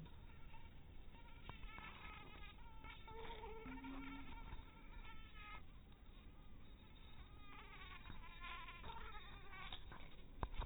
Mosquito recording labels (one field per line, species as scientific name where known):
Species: mosquito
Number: one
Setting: cup